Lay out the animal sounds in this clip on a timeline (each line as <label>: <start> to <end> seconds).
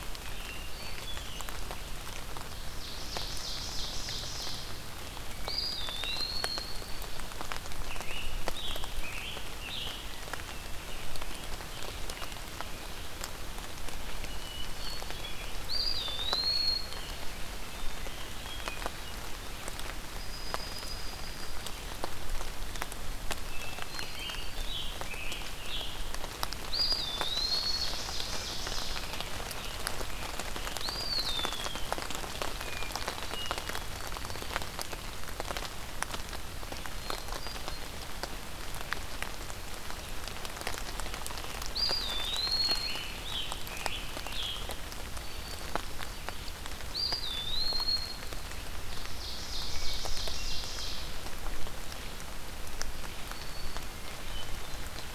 Hermit Thrush (Catharus guttatus): 0.2 to 1.5 seconds
Ovenbird (Seiurus aurocapilla): 2.3 to 4.8 seconds
Eastern Wood-Pewee (Contopus virens): 5.2 to 7.0 seconds
Scarlet Tanager (Piranga olivacea): 7.8 to 10.0 seconds
Scarlet Tanager (Piranga olivacea): 10.4 to 13.1 seconds
Hermit Thrush (Catharus guttatus): 14.2 to 15.4 seconds
Eastern Wood-Pewee (Contopus virens): 15.5 to 17.0 seconds
Hermit Thrush (Catharus guttatus): 17.5 to 19.0 seconds
Yellow-rumped Warbler (Setophaga coronata): 20.1 to 21.6 seconds
Hermit Thrush (Catharus guttatus): 23.4 to 24.6 seconds
Scarlet Tanager (Piranga olivacea): 24.1 to 26.1 seconds
Eastern Wood-Pewee (Contopus virens): 26.7 to 28.2 seconds
Ovenbird (Seiurus aurocapilla): 27.1 to 29.1 seconds
Scarlet Tanager (Piranga olivacea): 28.8 to 31.1 seconds
Eastern Wood-Pewee (Contopus virens): 30.7 to 31.8 seconds
Hermit Thrush (Catharus guttatus): 32.5 to 34.8 seconds
Hermit Thrush (Catharus guttatus): 36.8 to 37.9 seconds
Eastern Wood-Pewee (Contopus virens): 41.5 to 42.9 seconds
Scarlet Tanager (Piranga olivacea): 42.6 to 44.8 seconds
Eastern Wood-Pewee (Contopus virens): 46.7 to 48.2 seconds
Ovenbird (Seiurus aurocapilla): 48.7 to 51.1 seconds
Hermit Thrush (Catharus guttatus): 49.6 to 51.0 seconds
Black-throated Green Warbler (Setophaga virens): 53.0 to 53.9 seconds
Hermit Thrush (Catharus guttatus): 53.9 to 55.0 seconds